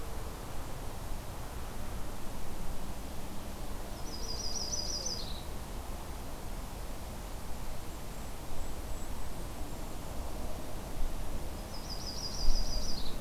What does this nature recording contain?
Yellow-rumped Warbler, Golden-crowned Kinglet